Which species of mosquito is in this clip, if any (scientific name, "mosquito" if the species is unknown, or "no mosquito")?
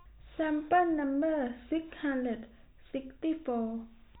no mosquito